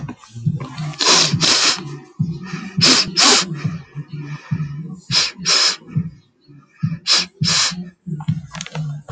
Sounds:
Sniff